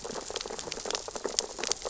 {"label": "biophony, sea urchins (Echinidae)", "recorder": "SoundTrap 600 or HydroMoth"}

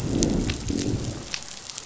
{"label": "biophony, growl", "recorder": "SoundTrap 500"}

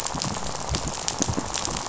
{"label": "biophony, rattle", "recorder": "SoundTrap 500"}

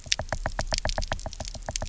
{"label": "biophony, knock", "recorder": "SoundTrap 300"}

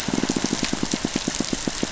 {"label": "biophony, pulse", "recorder": "SoundTrap 500"}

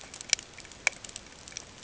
{"label": "ambient", "recorder": "HydroMoth"}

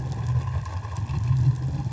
{"label": "anthrophony, boat engine", "recorder": "SoundTrap 500"}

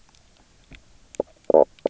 {"label": "biophony, knock croak", "recorder": "SoundTrap 300"}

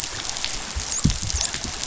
{"label": "biophony, dolphin", "recorder": "SoundTrap 500"}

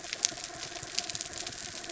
{"label": "anthrophony, mechanical", "recorder": "SoundTrap 300"}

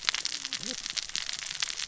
{"label": "biophony, cascading saw", "recorder": "SoundTrap 600 or HydroMoth"}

